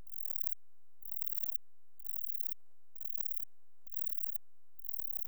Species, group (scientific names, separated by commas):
Baetica ustulata, Orthoptera